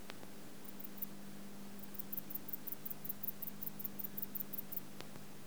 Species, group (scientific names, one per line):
Sepiana sepium
Orthoptera